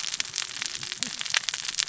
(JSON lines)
{"label": "biophony, cascading saw", "recorder": "SoundTrap 600 or HydroMoth"}